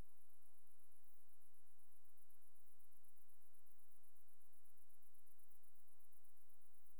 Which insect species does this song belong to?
Tettigonia viridissima